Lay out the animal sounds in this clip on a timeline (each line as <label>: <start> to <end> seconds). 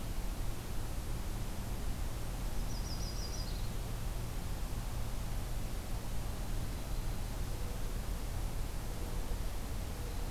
Yellow-rumped Warbler (Setophaga coronata): 2.5 to 3.8 seconds
Yellow-rumped Warbler (Setophaga coronata): 6.2 to 7.5 seconds
Mourning Dove (Zenaida macroura): 7.5 to 10.3 seconds